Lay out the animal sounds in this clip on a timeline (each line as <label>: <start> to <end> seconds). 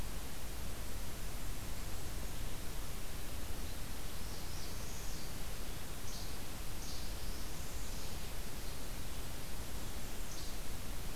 Blackburnian Warbler (Setophaga fusca): 1.3 to 2.5 seconds
Northern Parula (Setophaga americana): 4.0 to 5.4 seconds
Least Flycatcher (Empidonax minimus): 6.0 to 7.3 seconds
Northern Parula (Setophaga americana): 6.9 to 8.1 seconds
Least Flycatcher (Empidonax minimus): 10.0 to 10.9 seconds